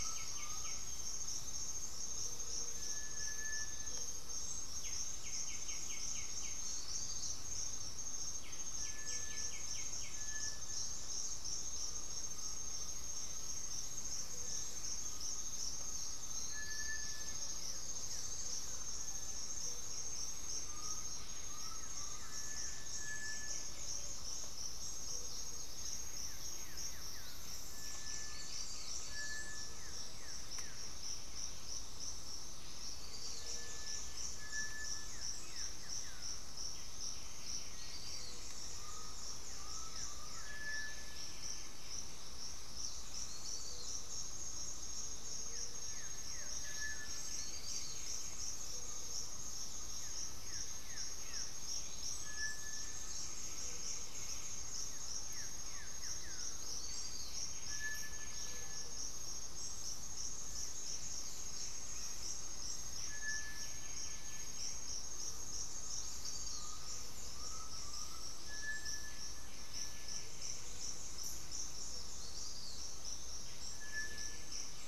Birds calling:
Blue-gray Saltator (Saltator coerulescens), Cinereous Tinamou (Crypturellus cinereus), Gray-fronted Dove (Leptotila rufaxilla), White-winged Becard (Pachyramphus polychopterus), unidentified bird, Undulated Tinamou (Crypturellus undulatus), Russet-backed Oropendola (Psarocolius angustifrons)

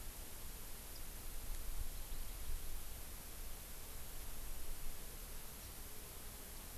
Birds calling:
Warbling White-eye (Zosterops japonicus)

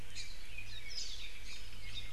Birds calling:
Warbling White-eye (Zosterops japonicus), Hawaii Amakihi (Chlorodrepanis virens)

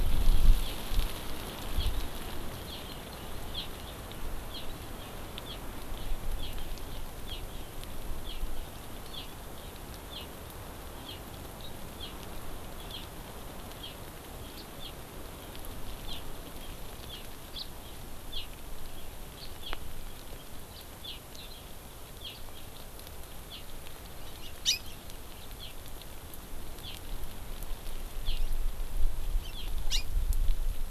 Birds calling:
Hawaii Amakihi (Chlorodrepanis virens), House Finch (Haemorhous mexicanus)

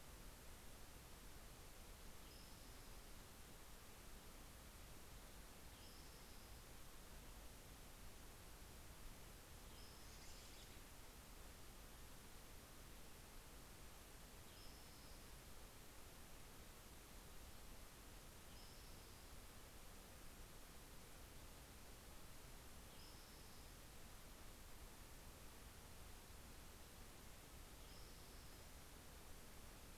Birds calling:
American Robin (Turdus migratorius), Spotted Towhee (Pipilo maculatus)

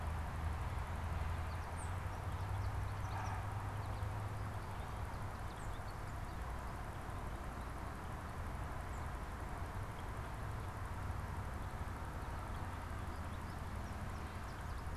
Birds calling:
Tufted Titmouse (Baeolophus bicolor), American Goldfinch (Spinus tristis)

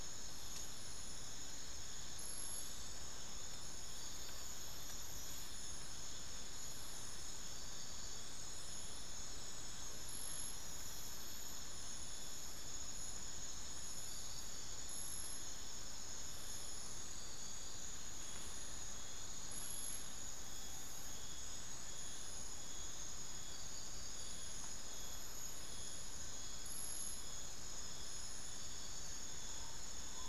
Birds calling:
unidentified bird

